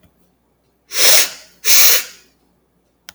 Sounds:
Sniff